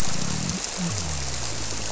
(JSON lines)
{"label": "biophony", "recorder": "SoundTrap 300"}